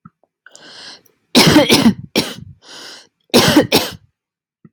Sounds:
Cough